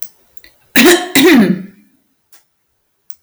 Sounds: Cough